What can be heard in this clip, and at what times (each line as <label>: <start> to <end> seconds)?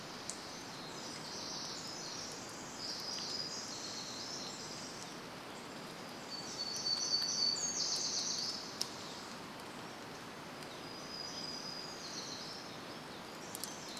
Pacific Wren song: 0 to 6 seconds
warbler song: 6 to 14 seconds